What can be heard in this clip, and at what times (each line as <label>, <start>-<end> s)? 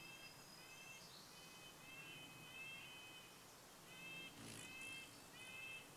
Spotted Towhee song, 0-2 s
warbler song, 0-2 s
Red-breasted Nuthatch song, 0-6 s
bird wingbeats, 4-6 s